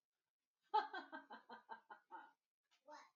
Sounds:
Laughter